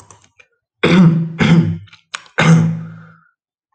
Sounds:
Throat clearing